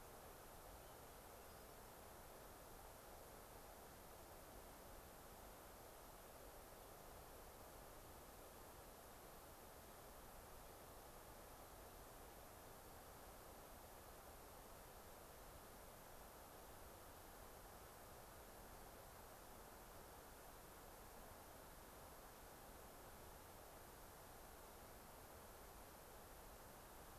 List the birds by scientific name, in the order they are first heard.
Catharus guttatus